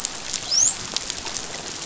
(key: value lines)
label: biophony, dolphin
recorder: SoundTrap 500